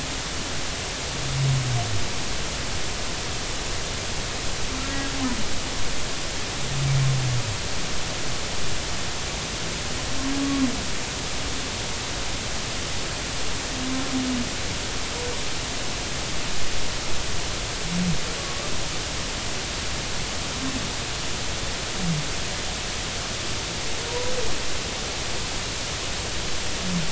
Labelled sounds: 4.8	5.1	humpback whale, 1.6 to 1.7 kHz

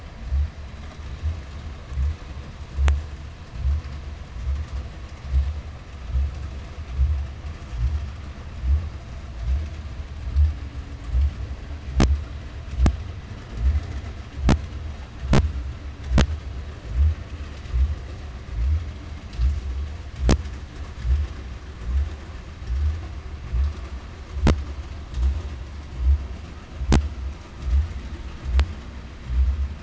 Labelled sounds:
3.7	11.2	vessel noise, 0 to 8.0 kHz

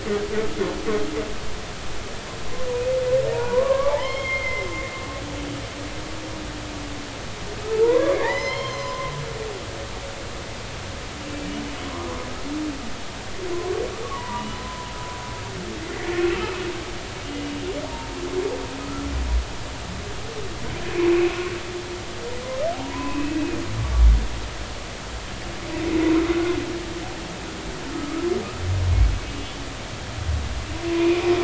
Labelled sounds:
3.3	4.7	humpback whale, 0.83 to 3.3 kHz
7.6	9.1	humpback whale, 0.83 to 5.4 kHz
13.5	14.9	humpback whale, 0.90 to 3.0 kHz
16.2	17.5	humpback whale, 2.5 to 2.9 kHz
17.8	18.2	humpback whale, 0.86 to 0.96 kHz
18.8	19.1	humpback whale, 1.2 to 1.4 kHz
21.0	21.3	humpback whale, 2.4 to 2.7 kHz
22.7	23.3	humpback whale, 0.80 to 2.7 kHz
27.9	28.3	humpback whale, 1.1 to 1.4 kHz
30.3	31.3	humpback whale, 2.3 to 2.9 kHz

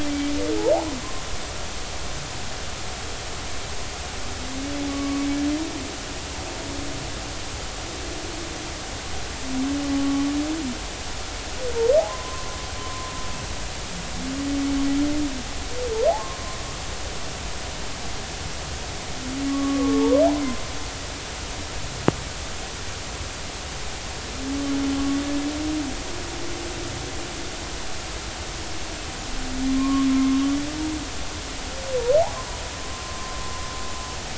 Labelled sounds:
0.1	0.3	humpback whale, 2.2 to 2.4 kHz
4.9	5.3	humpback whale, 1.1 to 1.2 kHz
10.0	10.3	humpback whale, 1.1 to 1.2 kHz
12.1	13.1	humpback whale, 0.96 to 1.1 kHz
19.5	20.2	humpback whale, 0.83 to 1.2 kHz
29.7	30.4	humpback whale, 1.0 to 1.2 kHz
32.8	33.3	humpback whale, 0.99 to 1.1 kHz

